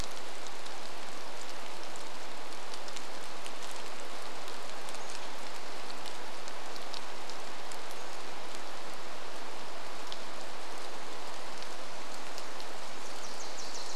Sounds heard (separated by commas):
rain, Pacific-slope Flycatcher call, Wilson's Warbler song